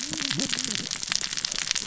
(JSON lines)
{"label": "biophony, cascading saw", "recorder": "SoundTrap 600 or HydroMoth"}